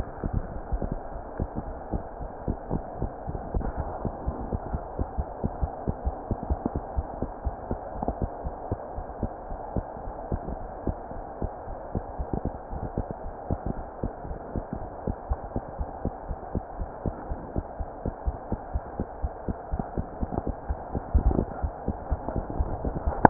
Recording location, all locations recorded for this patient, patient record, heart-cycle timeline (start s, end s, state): aortic valve (AV)
aortic valve (AV)+mitral valve (MV)
#Age: Child
#Sex: Female
#Height: 74.0 cm
#Weight: 10.1 kg
#Pregnancy status: False
#Murmur: Absent
#Murmur locations: nan
#Most audible location: nan
#Systolic murmur timing: nan
#Systolic murmur shape: nan
#Systolic murmur grading: nan
#Systolic murmur pitch: nan
#Systolic murmur quality: nan
#Diastolic murmur timing: nan
#Diastolic murmur shape: nan
#Diastolic murmur grading: nan
#Diastolic murmur pitch: nan
#Diastolic murmur quality: nan
#Outcome: Abnormal
#Campaign: 2015 screening campaign
0.00	7.94	unannotated
7.94	8.04	S1
8.04	8.18	systole
8.18	8.30	S2
8.30	8.44	diastole
8.44	8.56	S1
8.56	8.68	systole
8.68	8.80	S2
8.80	8.96	diastole
8.96	9.04	S1
9.04	9.20	systole
9.20	9.30	S2
9.30	9.50	diastole
9.50	9.60	S1
9.60	9.74	systole
9.74	9.86	S2
9.86	10.06	diastole
10.06	10.16	S1
10.16	10.32	systole
10.32	10.42	S2
10.42	10.60	diastole
10.60	10.70	S1
10.70	10.84	systole
10.84	10.98	S2
10.98	11.15	diastole
11.15	11.24	S1
11.24	11.40	systole
11.40	11.50	S2
11.50	11.66	diastole
11.66	11.76	S1
11.76	11.94	systole
11.94	12.06	S2
12.06	12.20	diastole
12.20	12.30	S1
12.30	12.44	systole
12.44	12.56	S2
12.56	12.72	diastole
12.72	12.84	S1
12.84	12.96	systole
12.96	13.06	S2
13.06	13.24	diastole
13.24	13.34	S1
13.34	13.48	systole
13.48	13.60	S2
13.60	13.74	diastole
13.74	13.86	S1
13.86	14.04	systole
14.04	14.12	S2
14.12	14.28	diastole
14.28	14.40	S1
14.40	14.54	systole
14.54	14.64	S2
14.64	14.80	diastole
14.80	14.92	S1
14.92	15.06	systole
15.06	15.16	S2
15.16	15.28	diastole
15.28	15.38	S1
15.38	15.52	systole
15.52	15.64	S2
15.64	15.80	diastole
15.80	15.90	S1
15.90	16.04	systole
16.04	16.14	S2
16.14	16.28	diastole
16.28	16.38	S1
16.38	16.54	systole
16.54	16.64	S2
16.64	16.78	diastole
16.78	16.90	S1
16.90	17.06	systole
17.06	17.16	S2
17.16	17.28	diastole
17.28	17.40	S1
17.40	17.54	systole
17.54	17.64	S2
17.64	17.78	diastole
17.78	17.90	S1
17.90	18.04	systole
18.04	18.14	S2
18.14	18.26	diastole
18.26	18.38	S1
18.38	18.50	systole
18.50	18.60	S2
18.60	18.72	diastole
18.72	18.86	S1
18.86	18.98	systole
18.98	19.08	S2
19.08	19.20	diastole
19.20	19.32	S1
19.32	19.46	systole
19.46	19.56	S2
19.56	19.70	diastole
19.70	19.84	S1
19.84	19.96	systole
19.96	20.06	S2
20.06	20.20	diastole
20.20	20.29	S1
20.29	23.30	unannotated